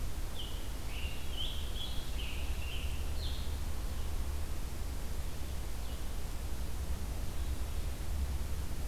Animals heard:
Scarlet Tanager (Piranga olivacea)

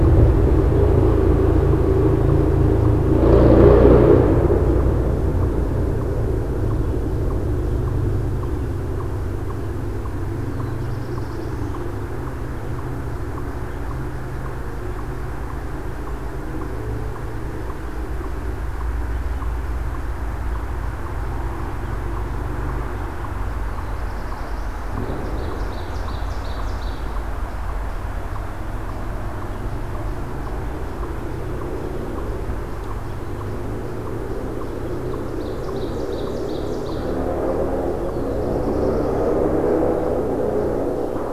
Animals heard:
Black-throated Blue Warbler (Setophaga caerulescens)
Ovenbird (Seiurus aurocapilla)

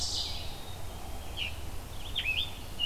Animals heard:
Black-capped Chickadee (Poecile atricapillus)
Red-eyed Vireo (Vireo olivaceus)
Scarlet Tanager (Piranga olivacea)
Ovenbird (Seiurus aurocapilla)

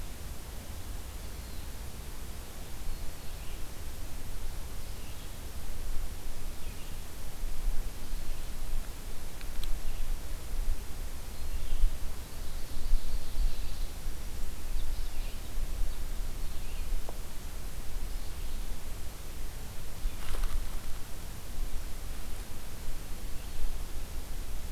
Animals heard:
Ovenbird (Seiurus aurocapilla)
Red-eyed Vireo (Vireo olivaceus)

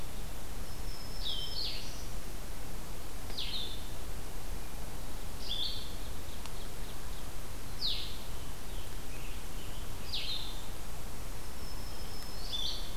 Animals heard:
Black-throated Green Warbler (Setophaga virens)
Blue-headed Vireo (Vireo solitarius)
American Robin (Turdus migratorius)
Ovenbird (Seiurus aurocapilla)

